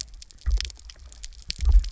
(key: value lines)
label: biophony, double pulse
recorder: SoundTrap 300